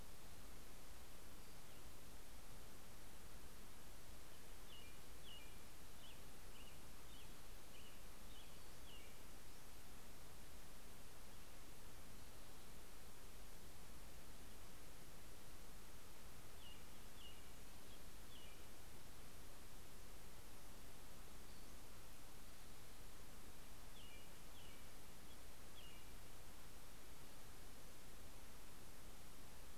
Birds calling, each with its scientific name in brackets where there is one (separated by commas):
American Robin (Turdus migratorius), Pacific-slope Flycatcher (Empidonax difficilis)